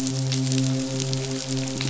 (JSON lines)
{"label": "biophony, midshipman", "recorder": "SoundTrap 500"}